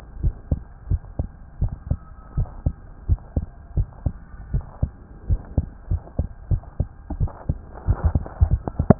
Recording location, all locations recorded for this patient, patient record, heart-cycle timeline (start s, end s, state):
tricuspid valve (TV)
aortic valve (AV)+pulmonary valve (PV)+tricuspid valve (TV)+mitral valve (MV)
#Age: Child
#Sex: Male
#Height: 111.0 cm
#Weight: 17.8 kg
#Pregnancy status: False
#Murmur: Absent
#Murmur locations: nan
#Most audible location: nan
#Systolic murmur timing: nan
#Systolic murmur shape: nan
#Systolic murmur grading: nan
#Systolic murmur pitch: nan
#Systolic murmur quality: nan
#Diastolic murmur timing: nan
#Diastolic murmur shape: nan
#Diastolic murmur grading: nan
#Diastolic murmur pitch: nan
#Diastolic murmur quality: nan
#Outcome: Normal
#Campaign: 2015 screening campaign
0.00	0.20	unannotated
0.20	0.34	S1
0.34	0.48	systole
0.48	0.60	S2
0.60	0.87	diastole
0.87	1.02	S1
1.02	1.16	systole
1.16	1.28	S2
1.28	1.58	diastole
1.58	1.74	S1
1.74	1.86	systole
1.86	1.98	S2
1.98	2.36	diastole
2.36	2.50	S1
2.50	2.64	systole
2.64	2.76	S2
2.76	3.06	diastole
3.06	3.20	S1
3.20	3.32	systole
3.32	3.44	S2
3.44	3.74	diastole
3.74	3.88	S1
3.88	4.03	systole
4.03	4.14	S2
4.14	4.50	diastole
4.50	4.66	S1
4.66	4.79	systole
4.79	4.94	S2
4.94	5.28	diastole
5.28	5.42	S1
5.42	5.56	systole
5.56	5.66	S2
5.66	5.88	diastole
5.88	6.02	S1
6.02	6.17	systole
6.17	6.26	S2
6.26	6.48	diastole
6.48	6.62	S1
6.62	6.76	systole
6.76	6.88	S2
6.88	8.99	unannotated